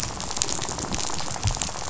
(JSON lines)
{"label": "biophony, rattle", "recorder": "SoundTrap 500"}